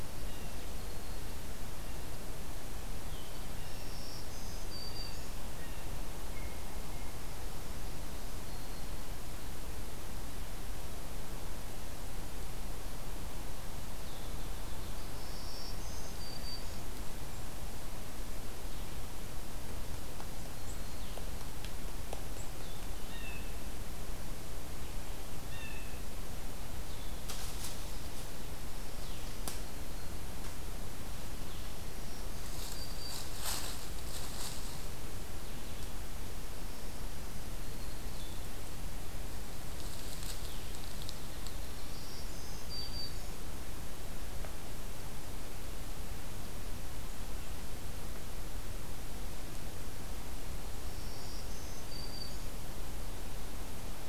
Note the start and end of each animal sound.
0.0s-1.9s: Blue-headed Vireo (Vireo solitarius)
3.3s-5.6s: Black-throated Green Warbler (Setophaga virens)
3.4s-7.3s: Blue Jay (Cyanocitta cristata)
8.0s-9.2s: Black-throated Green Warbler (Setophaga virens)
14.8s-17.1s: Black-throated Green Warbler (Setophaga virens)
22.9s-23.8s: Blue Jay (Cyanocitta cristata)
25.3s-26.3s: Blue Jay (Cyanocitta cristata)
28.7s-30.4s: Black-throated Green Warbler (Setophaga virens)
31.8s-33.3s: Black-throated Green Warbler (Setophaga virens)
37.3s-38.6s: Black-throated Green Warbler (Setophaga virens)
41.6s-43.5s: Black-throated Green Warbler (Setophaga virens)
50.6s-52.7s: Black-throated Green Warbler (Setophaga virens)

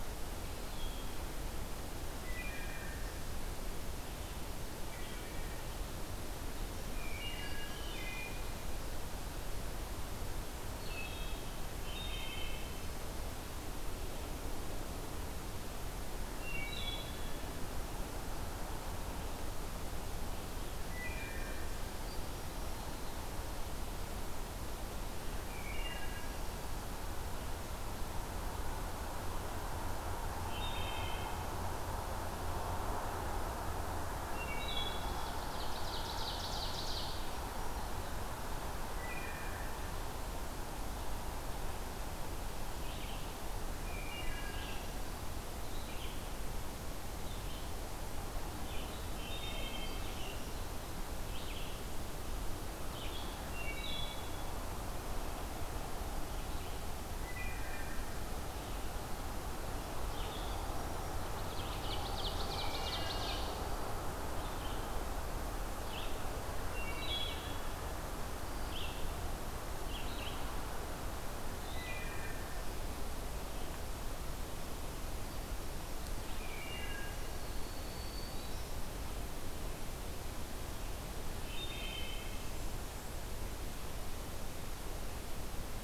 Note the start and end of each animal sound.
0.6s-1.2s: Wood Thrush (Hylocichla mustelina)
2.0s-3.1s: Wood Thrush (Hylocichla mustelina)
4.7s-5.4s: Wood Thrush (Hylocichla mustelina)
6.8s-8.6s: Wood Thrush (Hylocichla mustelina)
10.7s-12.9s: Wood Thrush (Hylocichla mustelina)
16.1s-17.4s: Wood Thrush (Hylocichla mustelina)
20.9s-21.7s: Wood Thrush (Hylocichla mustelina)
25.4s-26.5s: Wood Thrush (Hylocichla mustelina)
30.4s-31.4s: Wood Thrush (Hylocichla mustelina)
34.2s-35.3s: Wood Thrush (Hylocichla mustelina)
35.0s-37.3s: Ovenbird (Seiurus aurocapilla)
38.9s-39.8s: Wood Thrush (Hylocichla mustelina)
42.6s-70.4s: Red-eyed Vireo (Vireo olivaceus)
43.9s-44.7s: Wood Thrush (Hylocichla mustelina)
49.1s-50.0s: Wood Thrush (Hylocichla mustelina)
53.3s-54.5s: Wood Thrush (Hylocichla mustelina)
57.1s-57.9s: Wood Thrush (Hylocichla mustelina)
61.3s-63.8s: Ovenbird (Seiurus aurocapilla)
62.5s-63.3s: Wood Thrush (Hylocichla mustelina)
66.7s-67.5s: Wood Thrush (Hylocichla mustelina)
71.6s-72.5s: Wood Thrush (Hylocichla mustelina)
76.5s-77.2s: Wood Thrush (Hylocichla mustelina)
77.2s-78.8s: Black-throated Green Warbler (Setophaga virens)
81.5s-82.6s: Wood Thrush (Hylocichla mustelina)

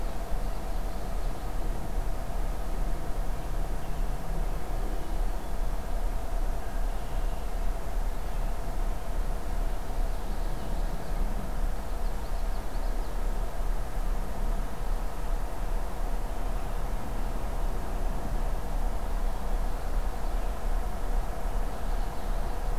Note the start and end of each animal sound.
0.2s-1.6s: Common Yellowthroat (Geothlypis trichas)
3.1s-4.1s: American Robin (Turdus migratorius)
9.8s-11.3s: Common Yellowthroat (Geothlypis trichas)
11.6s-13.2s: Common Yellowthroat (Geothlypis trichas)
21.5s-22.8s: Common Yellowthroat (Geothlypis trichas)

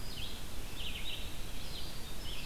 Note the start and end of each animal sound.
0.0s-2.5s: Red-eyed Vireo (Vireo olivaceus)
1.0s-2.5s: Winter Wren (Troglodytes hiemalis)

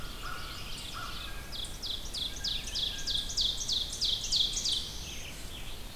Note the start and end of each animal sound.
0.0s-1.5s: American Crow (Corvus brachyrhynchos)
0.0s-1.6s: Veery (Catharus fuscescens)
0.0s-5.0s: Ovenbird (Seiurus aurocapilla)
0.0s-6.0s: Red-eyed Vireo (Vireo olivaceus)
2.2s-3.5s: Blue Jay (Cyanocitta cristata)
4.5s-5.3s: Black-throated Blue Warbler (Setophaga caerulescens)

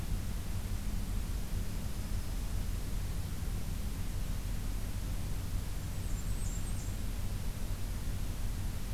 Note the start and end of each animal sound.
1.8s-2.5s: Black-throated Green Warbler (Setophaga virens)
5.8s-7.0s: Blackburnian Warbler (Setophaga fusca)

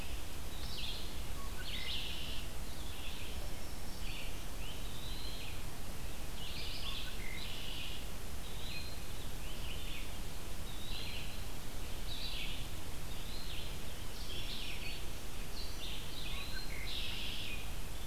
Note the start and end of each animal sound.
0.0s-18.1s: Red-eyed Vireo (Vireo olivaceus)
0.4s-1.3s: Eastern Wood-Pewee (Contopus virens)
1.2s-2.6s: Red-winged Blackbird (Agelaius phoeniceus)
3.0s-4.6s: Black-throated Green Warbler (Setophaga virens)
4.6s-5.5s: Eastern Wood-Pewee (Contopus virens)
6.8s-8.2s: Red-winged Blackbird (Agelaius phoeniceus)
8.3s-9.3s: Eastern Wood-Pewee (Contopus virens)
10.6s-11.5s: Eastern Wood-Pewee (Contopus virens)
13.1s-13.8s: Eastern Wood-Pewee (Contopus virens)
14.2s-15.2s: Black-throated Green Warbler (Setophaga virens)
16.1s-16.8s: Eastern Wood-Pewee (Contopus virens)
16.3s-17.6s: Red-winged Blackbird (Agelaius phoeniceus)

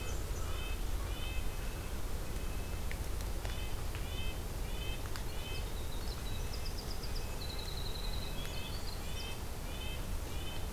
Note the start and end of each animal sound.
0.0s-0.6s: Black-and-white Warbler (Mniotilta varia)
0.0s-1.4s: American Crow (Corvus brachyrhynchos)
0.0s-5.8s: Red-breasted Nuthatch (Sitta canadensis)
4.9s-9.4s: Winter Wren (Troglodytes hiemalis)
8.2s-10.7s: Red-breasted Nuthatch (Sitta canadensis)

